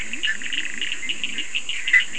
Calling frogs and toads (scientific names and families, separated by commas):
Boana bischoffi (Hylidae), Leptodactylus latrans (Leptodactylidae), Sphaenorhynchus surdus (Hylidae)